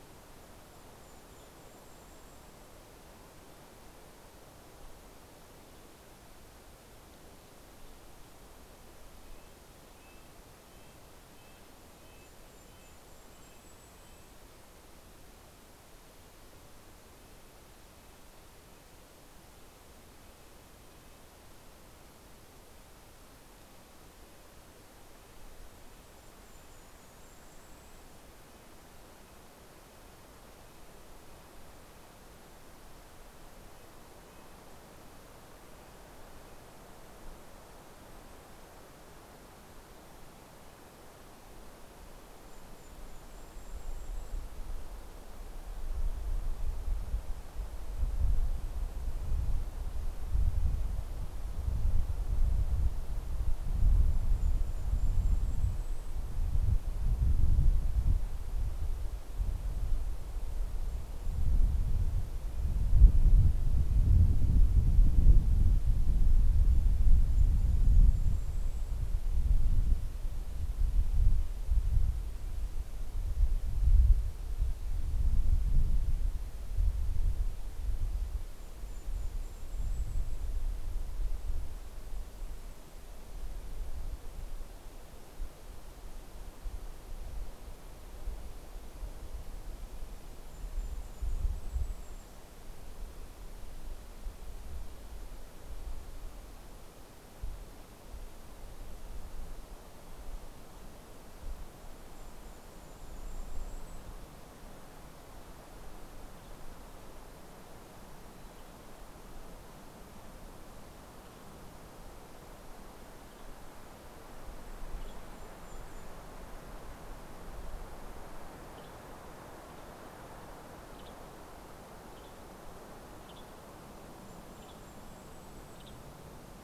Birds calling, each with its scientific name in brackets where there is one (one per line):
Red-breasted Nuthatch (Sitta canadensis)
Western Tanager (Piranga ludoviciana)
Golden-crowned Kinglet (Regulus satrapa)